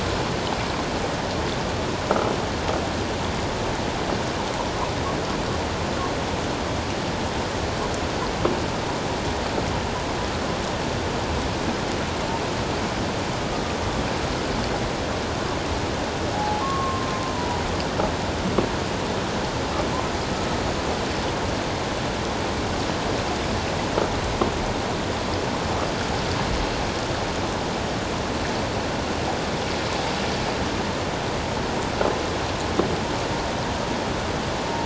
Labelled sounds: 16.3	17.1	humpback whale, 0.78 to 1.2 kHz
17.3	17.6	humpback whale, 0.91 to 1.0 kHz

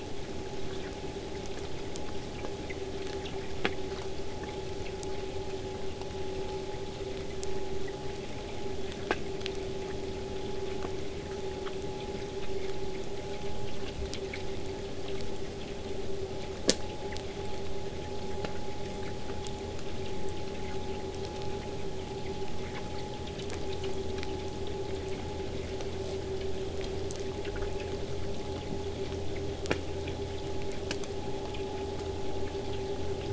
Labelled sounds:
13.0	14.5	killer whale, southern resident, 6.8 to 8.0 kHz
20.4	25.4	vessel noise, 0 to 8.0 kHz

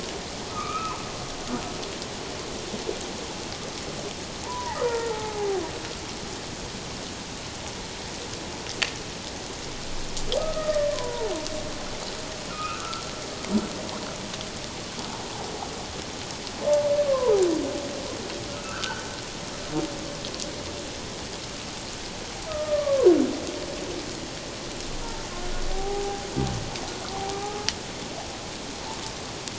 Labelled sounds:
0.5	1.0	humpback whale, 0.88 to 2.7 kHz
4.4	5.5	humpback whale, 0.78 to 1.9 kHz
10.4	11.3	humpback whale, 0.78 to 1.9 kHz
12.5	13.0	humpback whale, 1.2 to 2.7 kHz
17.1	17.4	humpback whale, 0.78 to 1.2 kHz
18.5	19.0	humpback whale, 1.2 to 1.6 kHz
22.5	23.1	humpback whale, 0.94 to 1.9 kHz
25.7	26.3	humpback whale, 0.78 to 0.88 kHz

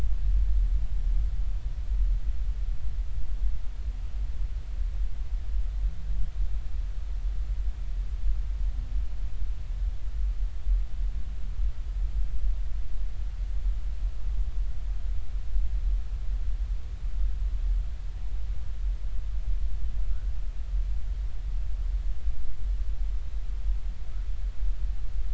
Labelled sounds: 20.1	20.3	humpback whale, 1.3 to 1.6 kHz

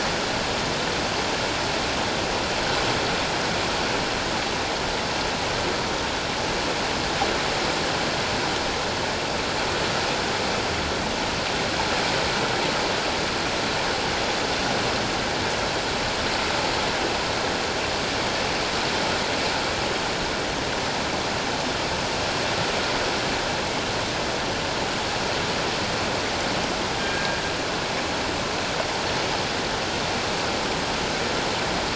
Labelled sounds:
27.0	27.4	killer whale, northern resident, G clan, 1.6 to 1.7 kHz

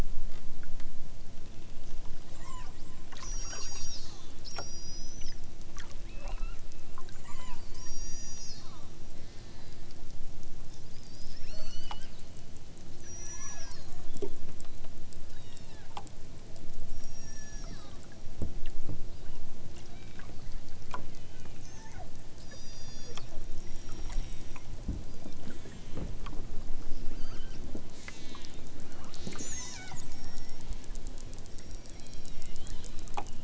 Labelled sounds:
2.2	2.8	killer whale, southern Alaska resident, 0.64 to 8.0 kHz
3.3	5.4	killer whale, southern Alaska resident, 2.9 to 8.0 kHz
6.0	6.7	killer whale, southern Alaska resident, 1.1 to 5.5 kHz
7.2	8.7	killer whale, southern Alaska resident, 0.60 to 8.0 kHz
9.2	10.0	killer whale, southern Alaska resident, 0.92 to 6.4 kHz
11.4	12.4	killer whale, southern Alaska resident, 0.87 to 8.0 kHz
13.0	13.8	killer whale, southern Alaska resident, 0.55 to 8.0 kHz
15.2	15.9	killer whale, southern Alaska resident, 1.1 to 7.6 kHz
16.9	17.8	killer whale, southern Alaska resident, 1.2 to 8.0 kHz
19.0	19.5	killer whale, southern Alaska resident, 1.0 to 5.2 kHz
19.8	20.3	killer whale, southern Alaska resident, 1.2 to 4.9 kHz
21.1	22.1	killer whale, southern Alaska resident, 0.51 to 8.0 kHz
22.5	23.2	killer whale, southern Alaska resident, 1.5 to 8.0 kHz
23.6	24.7	killer whale, southern Alaska resident, 1.0 to 5.8 kHz
25.4	26.2	killer whale, southern Alaska resident, 1.1 to 8.0 kHz
27.1	30.7	killer whale, southern Alaska resident, 0.51 to 8.0 kHz
31.5	33.1	killer whale, southern Alaska resident, 0.92 to 8.0 kHz

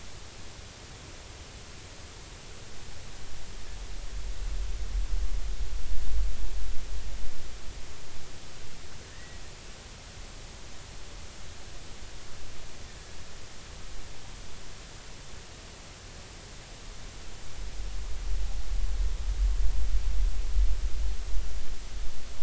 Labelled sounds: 9.1	9.4	humpback whale, 1.7 to 2.0 kHz

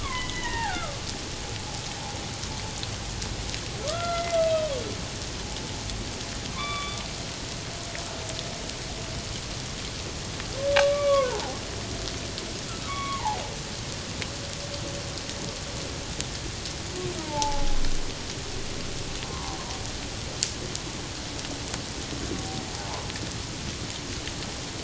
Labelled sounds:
0.0	0.9	humpback whale, 0.78 to 3.5 kHz
3.9	4.7	humpback whale, 1.1 to 2.6 kHz
6.5	7.0	humpback whale, 1.0 to 3.7 kHz
10.8	11.6	humpback whale, 0.78 to 2.3 kHz
12.8	13.4	humpback whale, 0.78 to 3.4 kHz
17.2	17.8	humpback whale, 0.78 to 1.0 kHz
19.2	19.6	humpback whale, 0.78 to 1.2 kHz

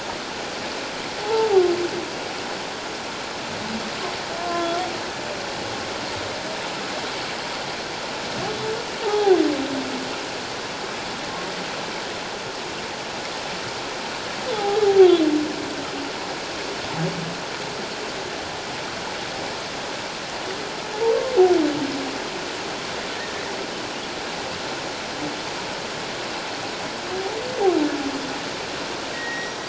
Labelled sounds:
1.2	1.5	humpback whale, 0.78 to 0.94 kHz
4.4	4.8	humpback whale, 0.97 to 1.5 kHz
9.0	9.4	humpback whale, 0.78 to 0.97 kHz
14.5	14.8	humpback whale, 0.78 to 0.91 kHz
29.1	29.6	humpback whale, 1.8 to 5.9 kHz

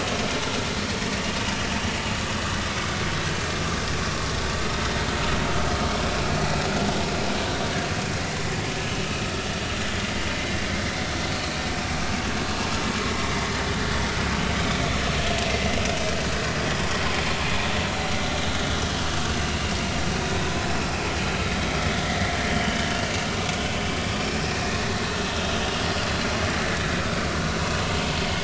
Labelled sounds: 11.3	11.6	vessel noise, 4.0 to 4.5 kHz
22.6	23.3	vessel noise, 2.6 to 3.2 kHz
24.2	24.8	vessel noise, 2.3 to 5.4 kHz

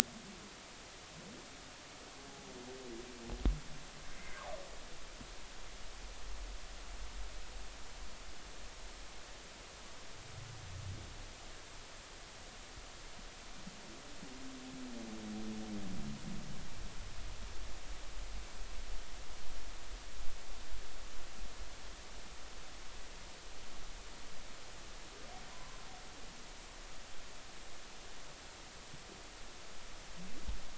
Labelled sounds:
25.5	25.8	humpback whale, 0.96 to 1.2 kHz

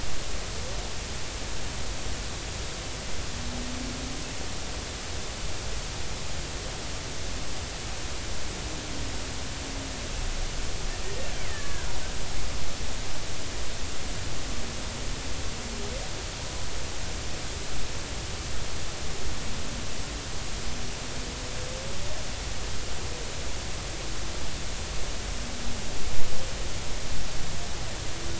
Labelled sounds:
11.0	11.9	killer whale, Bigg's (transient), 0.96 to 2.4 kHz

